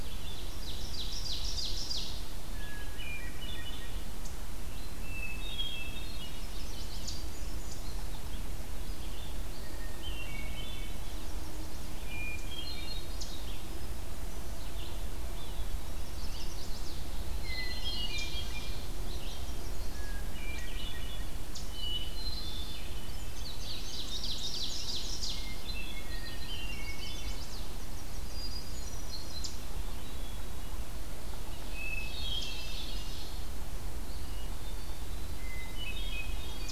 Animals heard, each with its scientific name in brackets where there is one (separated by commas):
Chestnut-sided Warbler (Setophaga pensylvanica), Red-eyed Vireo (Vireo olivaceus), Indigo Bunting (Passerina cyanea), Ovenbird (Seiurus aurocapilla), Hermit Thrush (Catharus guttatus)